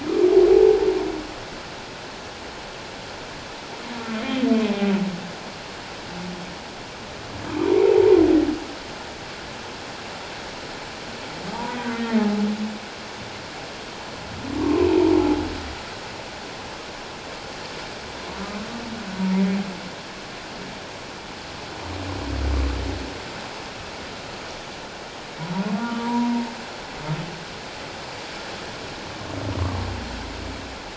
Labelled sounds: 11.5	11.8	humpback whale, 0.81 to 1.0 kHz
14.6	14.9	humpback whale, 0.88 to 1.2 kHz
18.3	18.6	humpback whale, 1.1 to 1.2 kHz
25.8	26.4	humpback whale, 0.91 to 1.5 kHz

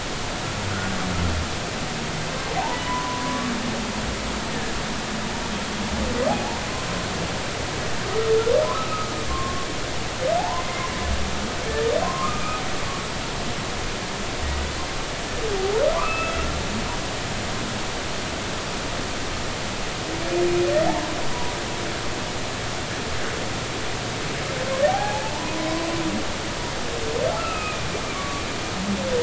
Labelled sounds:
2.6	3.4	humpback whale, 0.80 to 1.1 kHz
6.3	6.6	humpback whale, 0.80 to 0.99 kHz
8.7	9.7	humpback whale, 1.0 to 1.3 kHz
10.4	10.9	humpback whale, 0.80 to 2.2 kHz
11.7	12.6	humpback whale, 0.96 to 1.9 kHz
15.9	16.4	humpback whale, 0.96 to 2.7 kHz
20.9	21.5	humpback whale, 0.80 to 1.1 kHz
24.9	25.9	humpback whale, 0.80 to 1.1 kHz
27.4	27.9	humpback whale, 2.4 to 2.8 kHz
28.1	28.8	humpback whale, 1.1 to 1.4 kHz

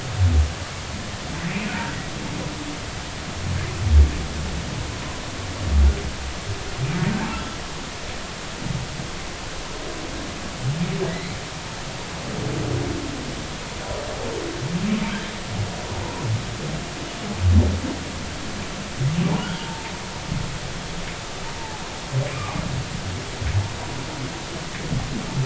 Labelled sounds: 1.7	2.0	humpback whale, 1.4 to 1.7 kHz
7.3	7.6	humpback whale, 1.3 to 1.4 kHz
11.1	11.4	humpback whale, 1.7 to 2.2 kHz
19.5	19.9	humpback whale, 0.83 to 0.93 kHz
21.6	21.8	humpback whale, 0.80 to 0.96 kHz

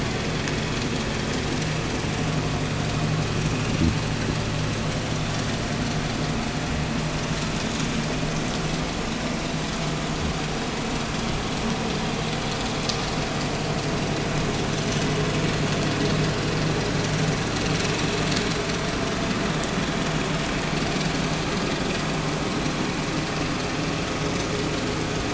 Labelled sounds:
3.5	4.1	fish, 0 to 0.52 kHz

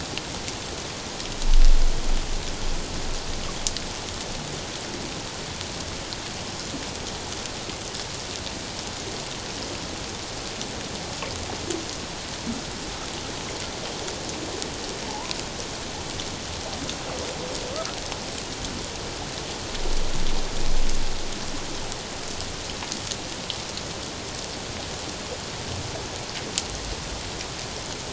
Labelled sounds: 15.0	15.4	humpback whale, 0.78 to 1.1 kHz

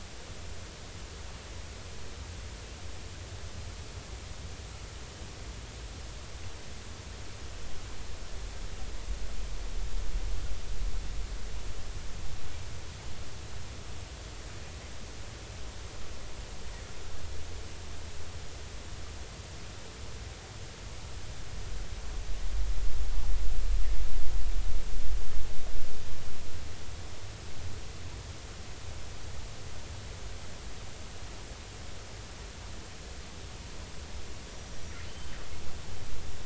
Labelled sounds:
34.5	35.4	killer whale, northern resident, G clan, call N23i, 2.9 to 5.9 kHz

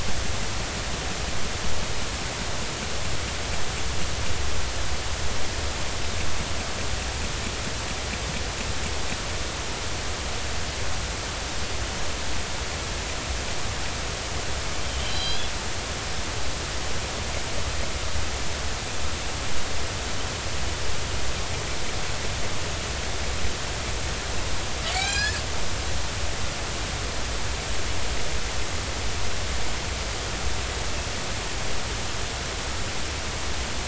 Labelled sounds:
15.0	15.5	killer whale, northern resident, G clan, call N40, 2.9 to 5.0 kHz
24.8	25.4	killer whale, northern resident, G clan, call N40, 1.5 to 5.9 kHz

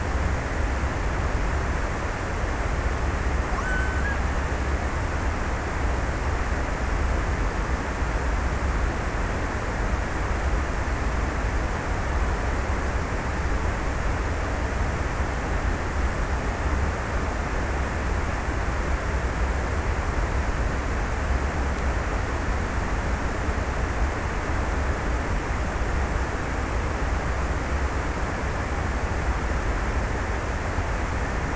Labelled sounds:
2.8	5.1	killer whale, Bigg's (transient), 1.1 to 1.9 kHz

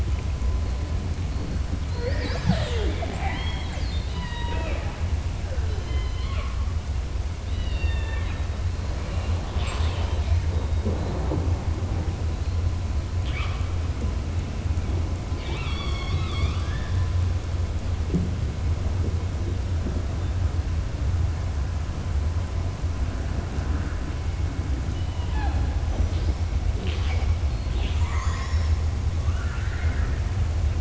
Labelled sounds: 5.7	6.5	killer whale, southern resident, 0.65 to 4.9 kHz
7.4	8.4	killer whale, southern resident, 1.1 to 4.9 kHz
13.1	13.6	killer whale, southern resident, 1.1 to 4.8 kHz
15.3	17.0	killer whale, southern resident, 0.84 to 7.6 kHz
26.7	28.8	killer whale, southern resident, 0.38 to 7.4 kHz
29.2	30.2	killer whale, southern resident, 1.2 to 2.9 kHz

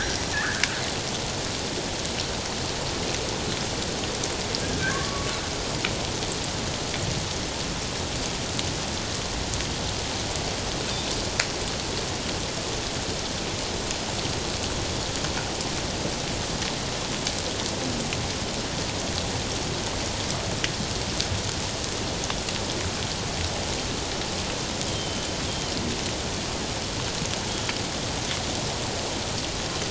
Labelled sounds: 0.0	0.7	killer whale, northern resident, G clan, 1.2 to 5.8 kHz
4.9	5.3	killer whale, northern resident, G clan, 1.0 to 1.2 kHz
24.9	25.7	killer whale, northern resident, G clan, 3.0 to 3.4 kHz

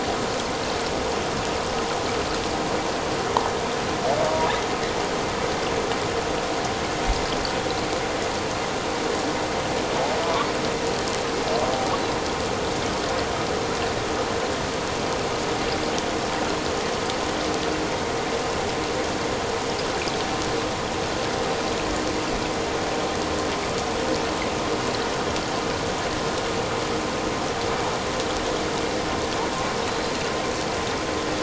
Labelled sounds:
30.0	30.3	killer whale, offshore, 4.1 to 4.2 kHz

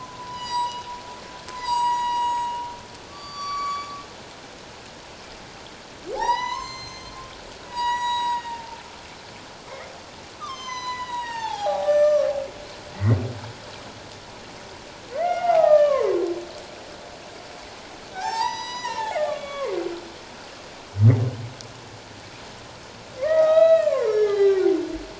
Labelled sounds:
0.0	0.9	humpback whale, 0.91 to 7.9 kHz
1.5	4.0	humpback whale, 0.88 to 8.0 kHz
6.1	7.2	humpback whale, 0.78 to 7.4 kHz
7.7	8.8	humpback whale, 0.84 to 7.8 kHz
10.4	12.3	humpback whale, 0.78 to 7.9 kHz
12.9	13.2	humpback whale, 1.8 to 2.2 kHz
15.1	16.2	humpback whale, 0.78 to 2.9 kHz
18.1	19.7	humpback whale, 0.78 to 7.9 kHz
23.2	24.7	humpback whale, 0.78 to 5.7 kHz

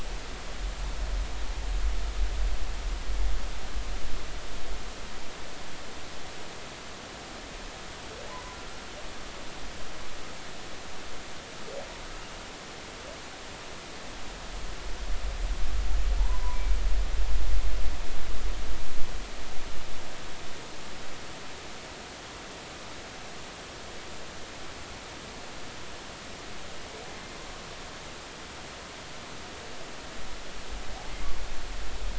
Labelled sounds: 16.2	16.6	humpback whale, 0.83 to 1.1 kHz
27.1	27.4	humpback whale, 2.0 to 2.1 kHz

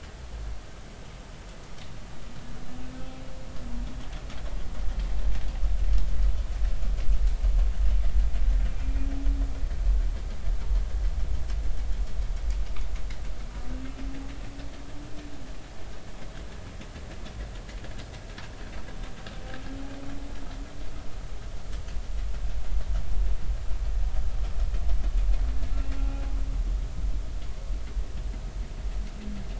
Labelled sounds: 25.9	26.2	humpback whale, 0.80 to 0.86 kHz

